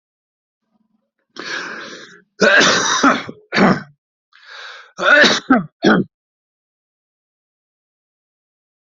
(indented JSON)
{
  "expert_labels": [
    {
      "quality": "good",
      "cough_type": "wet",
      "dyspnea": false,
      "wheezing": false,
      "stridor": false,
      "choking": false,
      "congestion": false,
      "nothing": true,
      "diagnosis": "obstructive lung disease",
      "severity": "mild"
    }
  ],
  "age": 81,
  "gender": "male",
  "respiratory_condition": false,
  "fever_muscle_pain": false,
  "status": "symptomatic"
}